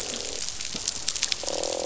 {"label": "biophony, croak", "recorder": "SoundTrap 500"}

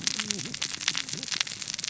{"label": "biophony, cascading saw", "recorder": "SoundTrap 600 or HydroMoth"}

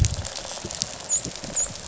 {"label": "biophony, dolphin", "recorder": "SoundTrap 500"}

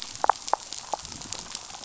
{"label": "biophony", "recorder": "SoundTrap 500"}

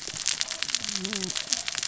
{"label": "biophony, cascading saw", "recorder": "SoundTrap 600 or HydroMoth"}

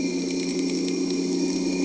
{"label": "anthrophony, boat engine", "recorder": "HydroMoth"}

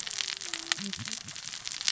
{"label": "biophony, cascading saw", "recorder": "SoundTrap 600 or HydroMoth"}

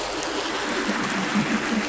{"label": "anthrophony, boat engine", "recorder": "SoundTrap 500"}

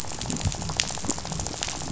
{"label": "biophony, rattle", "recorder": "SoundTrap 500"}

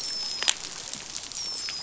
{"label": "biophony, dolphin", "recorder": "SoundTrap 500"}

